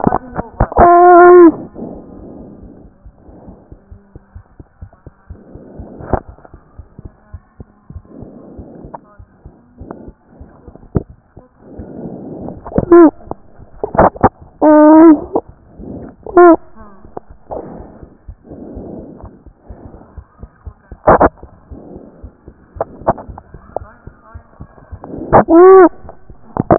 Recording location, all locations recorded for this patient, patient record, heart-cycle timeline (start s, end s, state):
pulmonary valve (PV)
aortic valve (AV)+pulmonary valve (PV)+tricuspid valve (TV)
#Age: Child
#Sex: Male
#Height: 123.0 cm
#Weight: 32.6 kg
#Pregnancy status: False
#Murmur: Absent
#Murmur locations: nan
#Most audible location: nan
#Systolic murmur timing: nan
#Systolic murmur shape: nan
#Systolic murmur grading: nan
#Systolic murmur pitch: nan
#Systolic murmur quality: nan
#Diastolic murmur timing: nan
#Diastolic murmur shape: nan
#Diastolic murmur grading: nan
#Diastolic murmur pitch: nan
#Diastolic murmur quality: nan
#Outcome: Normal
#Campaign: 2014 screening campaign
0.00	3.06	unannotated
3.06	3.14	S1
3.14	3.30	systole
3.30	3.34	S2
3.34	3.48	diastole
3.48	3.58	S1
3.58	3.72	systole
3.72	3.76	S2
3.76	3.92	diastole
3.92	4.01	S1
4.01	4.16	systole
4.16	4.20	S2
4.20	4.36	diastole
4.36	4.44	S1
4.44	4.60	systole
4.60	4.64	S2
4.64	4.82	diastole
4.82	4.90	S1
4.90	5.06	systole
5.06	5.11	S2
5.11	5.30	diastole
5.30	5.38	S1
5.38	5.55	systole
5.55	5.60	S2
5.60	5.78	diastole
5.78	26.78	unannotated